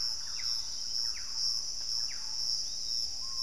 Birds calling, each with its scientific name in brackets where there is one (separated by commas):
Piratic Flycatcher (Legatus leucophaius), Screaming Piha (Lipaugus vociferans), Thrush-like Wren (Campylorhynchus turdinus)